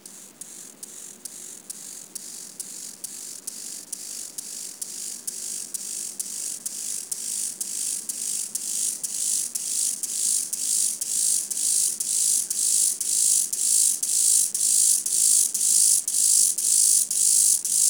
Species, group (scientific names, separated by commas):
Chorthippus mollis, Orthoptera